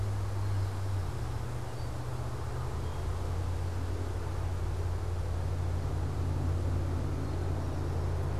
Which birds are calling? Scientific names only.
Pipilo erythrophthalmus, Melospiza melodia